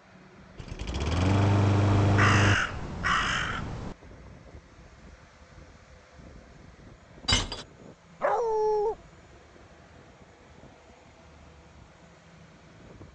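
At 0.57 seconds, an engine starts. Over it, at 1.87 seconds, a crow can be heard. Then, at 7.28 seconds, the sound of glass is heard. Finally, at 8.19 seconds, you can hear a dog. An even background noise sits about 25 dB below the sounds.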